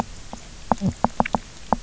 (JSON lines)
{"label": "biophony, knock", "recorder": "SoundTrap 300"}